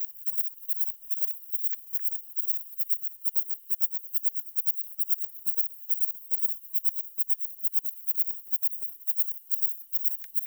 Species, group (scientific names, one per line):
Platycleis intermedia
Orthoptera